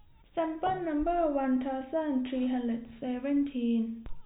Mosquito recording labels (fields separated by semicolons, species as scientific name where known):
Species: no mosquito; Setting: cup